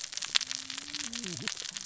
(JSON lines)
{"label": "biophony, cascading saw", "recorder": "SoundTrap 600 or HydroMoth"}